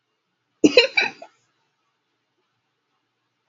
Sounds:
Laughter